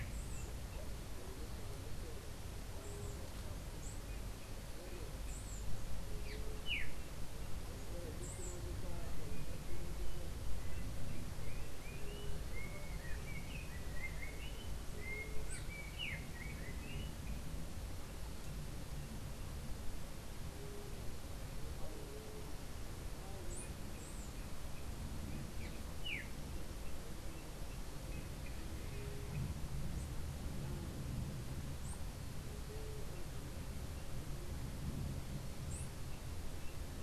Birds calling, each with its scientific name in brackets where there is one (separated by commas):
Yellow-backed Oriole (Icterus chrysater)